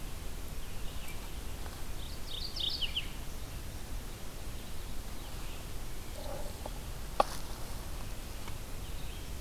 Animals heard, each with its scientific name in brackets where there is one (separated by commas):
Mourning Warbler (Geothlypis philadelphia)